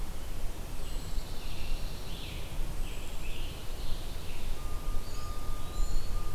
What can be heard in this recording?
Pine Warbler, Scarlet Tanager, Eastern Wood-Pewee